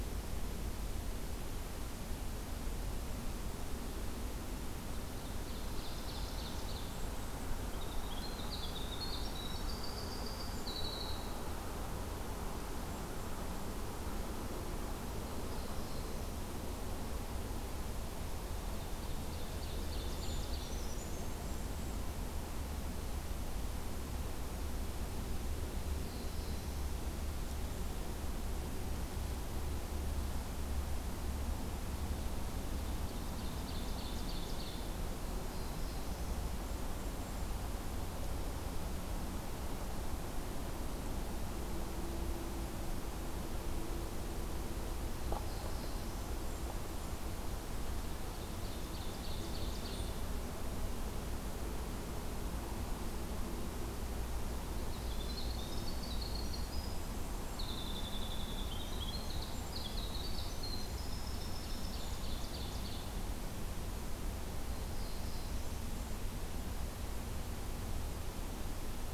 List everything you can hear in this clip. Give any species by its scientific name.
Seiurus aurocapilla, Troglodytes hiemalis, Setophaga caerulescens